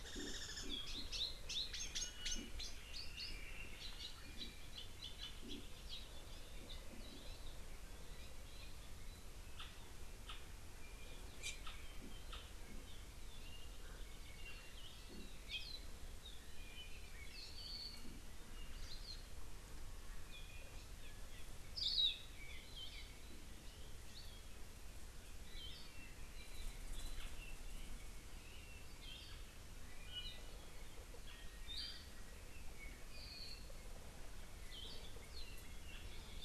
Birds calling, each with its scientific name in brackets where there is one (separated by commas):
Iiwi (Drepanis coccinea), Hawaii Amakihi (Chlorodrepanis virens), Hawaii Akepa (Loxops coccineus), Apapane (Himatione sanguinea)